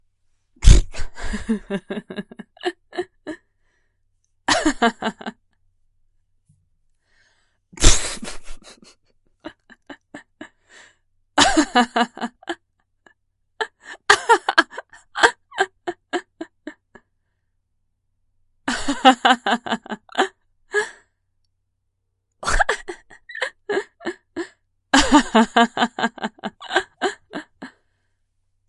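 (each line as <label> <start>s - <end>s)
A woman laughs scoffingly. 0.6s - 1.2s
A woman laughs briefly. 1.1s - 3.4s
A woman laughs briefly. 4.4s - 5.5s
A woman laughs scoffingly. 7.7s - 8.9s
A woman laughs quietly and faintly. 9.4s - 10.9s
A woman laughs with varying volume. 11.4s - 17.0s
A woman laughs briefly. 18.6s - 21.1s
A woman laughs with varying volume. 22.4s - 27.8s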